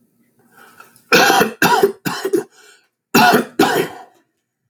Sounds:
Cough